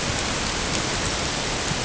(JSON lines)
{"label": "ambient", "recorder": "HydroMoth"}